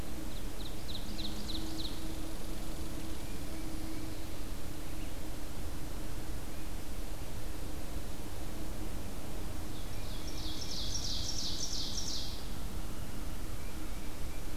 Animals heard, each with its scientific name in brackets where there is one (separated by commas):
Red Squirrel (Tamiasciurus hudsonicus), Ovenbird (Seiurus aurocapilla), Tufted Titmouse (Baeolophus bicolor)